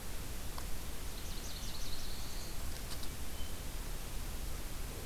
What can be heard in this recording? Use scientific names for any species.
Leiothlypis ruficapilla, Setophaga caerulescens